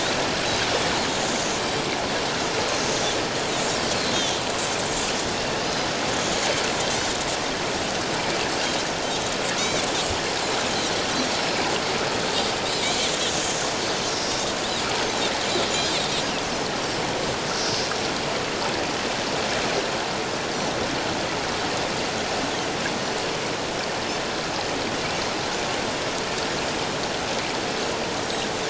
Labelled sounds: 9.6	9.8	Pacific white-sided dolphin, 3.3 to 4.0 kHz
11.4	11.6	Pacific white-sided dolphin, 5.1 to 5.4 kHz
12.6	13.1	Pacific white-sided dolphin, 3.6 to 4.2 kHz

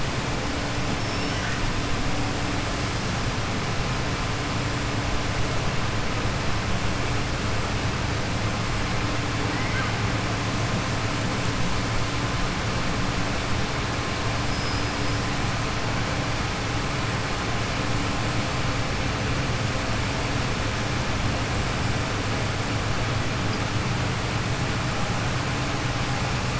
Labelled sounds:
9.5	9.9	killer whale, southern resident, 1.2 to 2.2 kHz

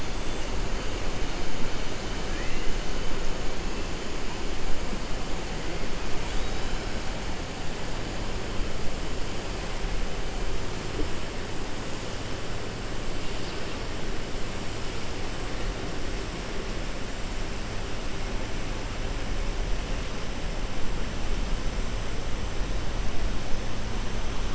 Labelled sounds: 6.2	6.8	killer whale, 2.4 to 4.8 kHz

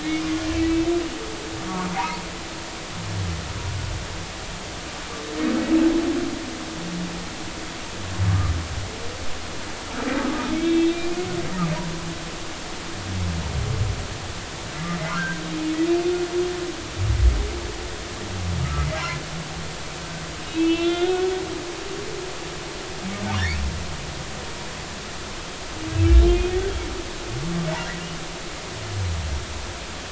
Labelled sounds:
0.5	0.9	humpback whale, 2.2 to 2.7 kHz
10.5	11.1	humpback whale, 2.2 to 3.8 kHz
15.0	15.4	humpback whale, 0.96 to 1.7 kHz
18.6	18.9	humpback whale, 1.2 to 1.4 kHz
20.5	21.3	humpback whale, 1.3 to 3.9 kHz
25.9	26.6	humpback whale, 2.4 to 3.3 kHz
27.7	28.0	humpback whale, 1.6 to 2.0 kHz

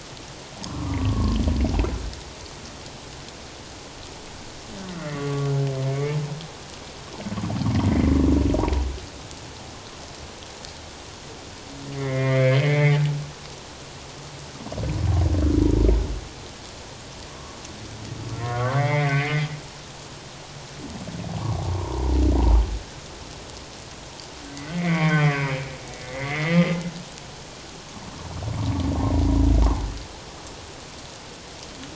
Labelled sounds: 0.6	1.4	humpback whale, 0.78 to 1.4 kHz
4.9	5.5	humpback whale, 1.1 to 2.2 kHz
5.8	6.2	humpback whale, 2.0 to 2.3 kHz
7.8	8.1	humpback whale, 1.9 to 2.2 kHz
12.0	13.0	humpback whale, 1.7 to 2.4 kHz
18.4	19.5	humpback whale, 1.0 to 2.6 kHz
21.7	22.1	humpback whale, 0.88 to 1.1 kHz
24.7	25.6	humpback whale, 1.0 to 3.3 kHz
26.0	26.7	humpback whale, 1.9 to 2.3 kHz

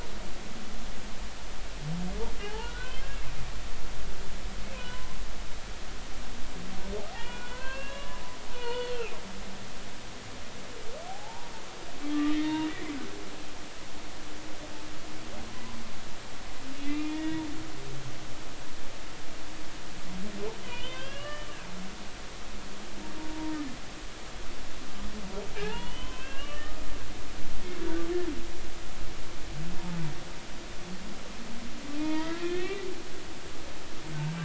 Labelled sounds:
2.4	2.9	humpback whale, 0.80 to 1.8 kHz
4.8	5.2	humpback whale, 0.96 to 1.1 kHz
7.1	8.2	humpback whale, 0.96 to 4.4 kHz
8.5	9.2	humpback whale, 0.90 to 4.5 kHz
11.1	11.5	humpback whale, 0.80 to 0.99 kHz
12.2	12.7	humpback whale, 0.90 to 3.8 kHz
16.8	17.4	humpback whale, 1.8 to 3.5 kHz
20.6	21.5	humpback whale, 0.96 to 5.0 kHz
25.6	26.8	humpback whale, 0.80 to 3.3 kHz
32.0	32.9	humpback whale, 0.86 to 3.9 kHz

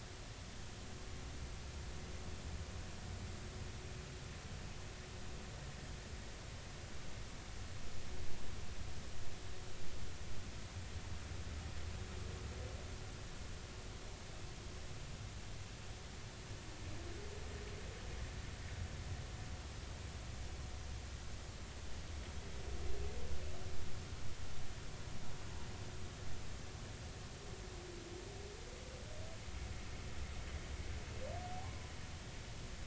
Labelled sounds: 31.5	31.9	humpback whale, 0.80 to 1.1 kHz

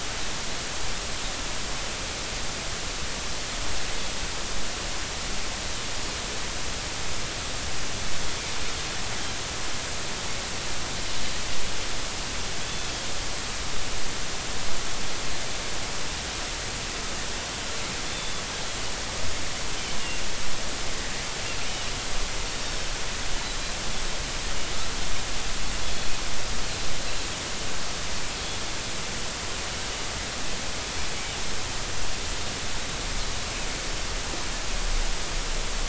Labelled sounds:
18.1	18.4	Pacific white-sided dolphin, 3.4 to 3.6 kHz
22.6	22.9	Pacific white-sided dolphin, 5.2 to 5.6 kHz

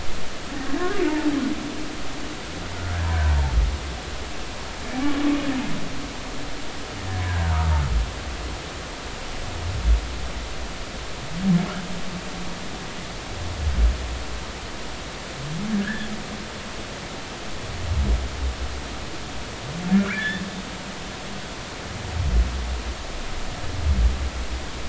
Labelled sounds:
7.3	7.7	humpback whale, 0.86 to 1.8 kHz
15.7	16.1	humpback whale, 1.4 to 1.9 kHz
20.0	20.4	humpback whale, 1.3 to 3.6 kHz

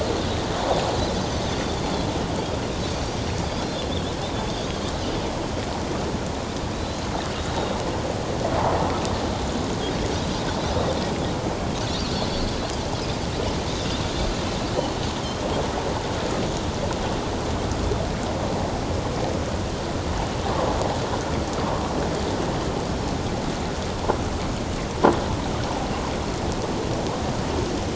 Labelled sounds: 1.1	1.4	Pacific white-sided dolphin, 5.9 to 6.3 kHz
3.9	4.9	Pacific white-sided dolphin, 3.2 to 6.5 kHz
6.7	7.8	Pacific white-sided dolphin, 3.7 to 4.2 kHz

